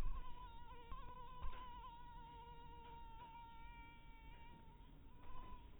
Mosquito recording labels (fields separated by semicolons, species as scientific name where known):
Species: mosquito; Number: one; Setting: cup